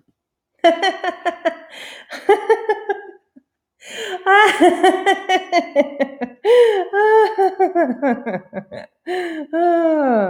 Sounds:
Laughter